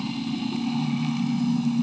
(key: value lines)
label: anthrophony, boat engine
recorder: HydroMoth